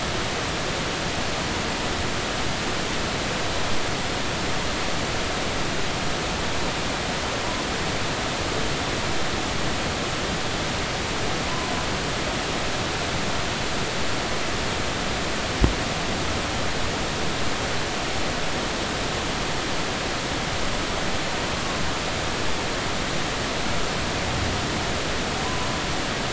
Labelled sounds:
11.5	11.7	humpback whale, 0.96 to 1.1 kHz

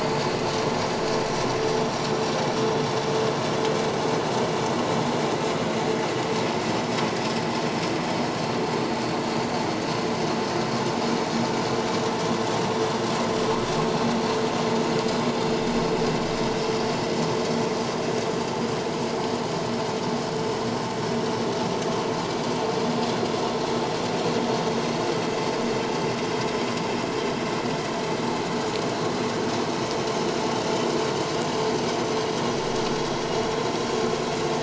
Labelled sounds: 9.2	9.5	vessel noise, 6.8 to 7.2 kHz

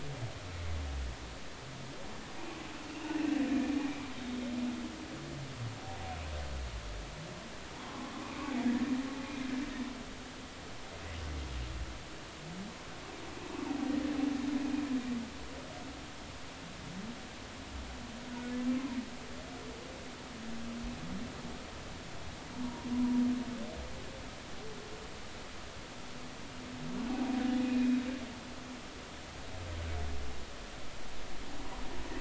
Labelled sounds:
2.9	3.2	humpback whale, 2.7 to 2.9 kHz
7.7	8.5	humpback whale, 0.86 to 2.6 kHz
22.6	22.9	humpback whale, 0.86 to 1.1 kHz
27.6	28.1	humpback whale, 2.3 to 3.9 kHz

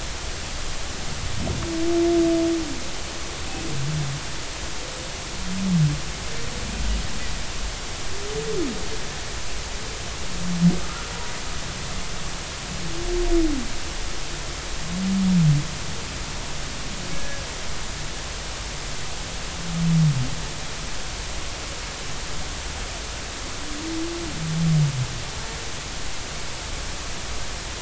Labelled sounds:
10.8	11.1	humpback whale, 1.2 to 1.5 kHz
17.1	17.4	humpback whale, 1.6 to 1.8 kHz

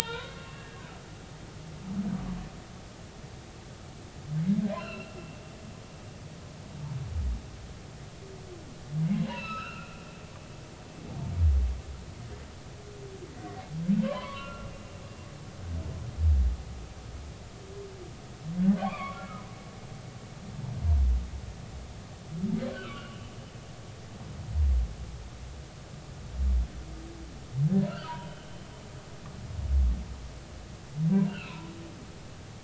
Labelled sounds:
0.0	1.4	humpback whale, 0.86 to 3.9 kHz
4.7	5.2	humpback whale, 1.3 to 4.3 kHz
9.2	10.0	humpback whale, 0.90 to 4.2 kHz
13.3	13.6	humpback whale, 1.8 to 2.0 kHz
14.0	14.7	humpback whale, 0.96 to 2.8 kHz
18.8	19.5	humpback whale, 1.0 to 3.4 kHz
22.7	23.2	humpback whale, 2.6 to 3.2 kHz
27.9	28.5	humpback whale, 0.90 to 3.1 kHz
31.3	31.6	humpback whale, 1.3 to 3.2 kHz

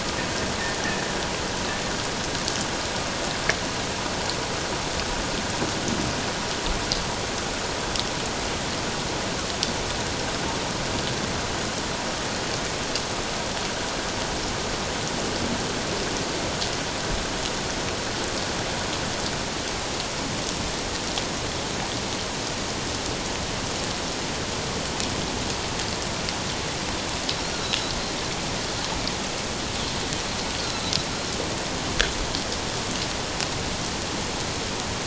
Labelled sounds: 30.6	30.9	Pacific white-sided dolphin, 3.9 to 4.4 kHz

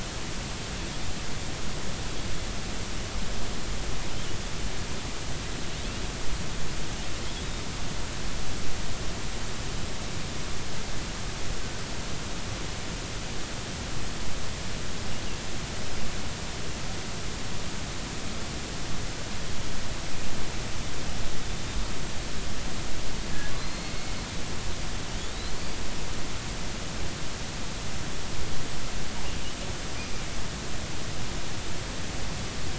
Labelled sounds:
23.6	24.1	killer whale, offshore, 2.1 to 4.4 kHz
25.6	25.8	killer whale, offshore, 4.4 to 5.0 kHz

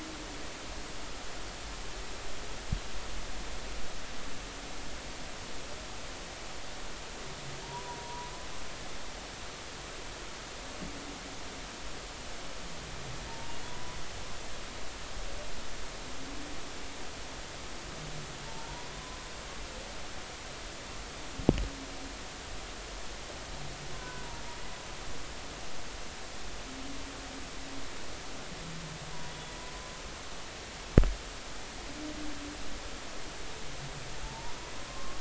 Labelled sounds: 7.6	8.3	humpback whale, 0.83 to 1.1 kHz
13.3	14.0	humpback whale, 0.86 to 1.0 kHz
18.5	18.9	humpback whale, 0.86 to 1.0 kHz
23.9	24.3	humpback whale, 0.96 to 1.5 kHz
29.3	29.6	humpback whale, 3.4 to 3.5 kHz
34.2	35.1	humpback whale, 0.83 to 1.2 kHz

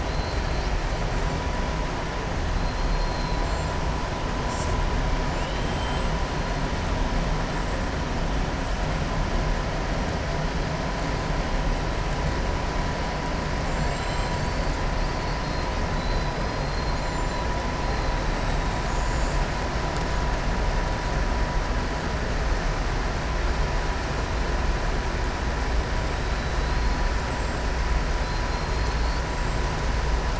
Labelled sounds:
0.0	0.7	killer whale, southern resident, 3.9 to 5.6 kHz
5.3	6.1	killer whale, southern resident, 2.6 to 4.1 kHz
13.6	14.5	killer whale, southern resident, 6.2 to 7.9 kHz
15.0	15.6	killer whale, southern resident, 3.8 to 4.8 kHz
28.2	29.2	killer whale, southern resident, 4.0 to 5.0 kHz

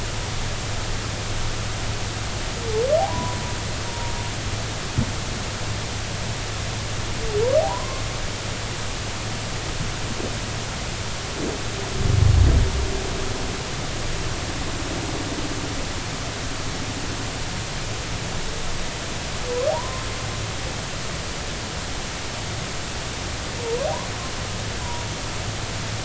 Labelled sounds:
3.0	4.1	humpback whale, 0.80 to 1.1 kHz
7.6	8.0	humpback whale, 0.80 to 1.2 kHz
19.7	20.0	humpback whale, 0.90 to 1.1 kHz
23.6	23.9	humpback whale, 0.86 to 1.2 kHz

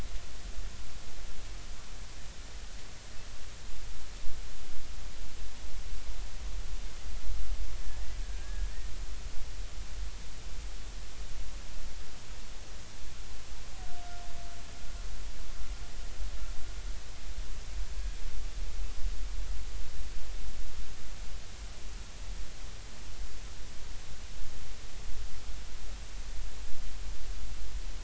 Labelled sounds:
7.8	8.7	killer whale, Bigg's (transient), 1.6 to 2.0 kHz

